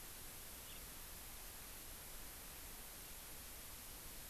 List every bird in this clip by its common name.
House Finch